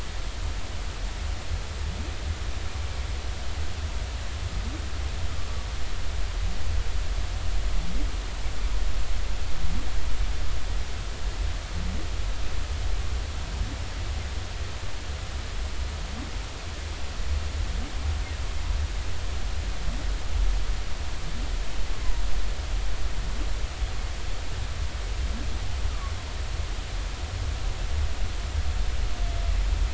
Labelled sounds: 25.9	26.1	humpback whale, 1.1 to 1.4 kHz

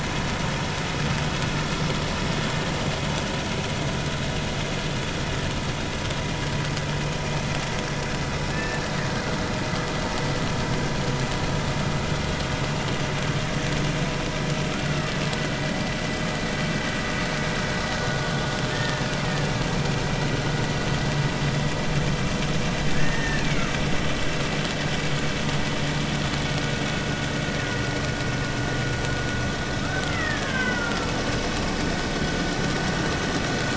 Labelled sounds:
8.5	8.8	killer whale, Bigg's (transient), 1.6 to 2.7 kHz
18.7	19.1	killer whale, Bigg's (transient), 1.7 to 1.9 kHz
22.9	23.7	killer whale, Bigg's (transient), 1.6 to 2.7 kHz
30.1	31.1	killer whale, Bigg's (transient), 0.93 to 3.2 kHz

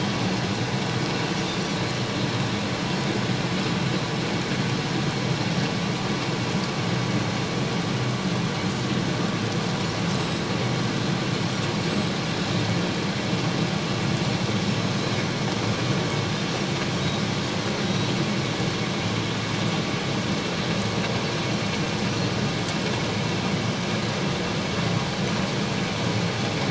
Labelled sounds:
10.2	10.4	Pacific white-sided dolphin, 7.7 to 7.8 kHz
14.7	14.9	Pacific white-sided dolphin, 5.2 to 5.4 kHz
17.8	18.1	Pacific white-sided dolphin, 3.8 to 5.8 kHz

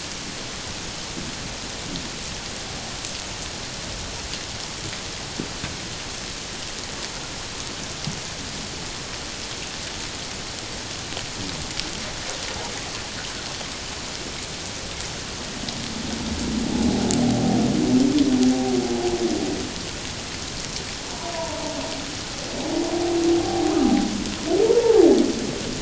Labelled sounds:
17.2	17.6	humpback whale, 0.78 to 0.81 kHz
21.1	21.6	humpback whale, 0.88 to 1.0 kHz
24.6	25.1	humpback whale, 0.78 to 1.0 kHz

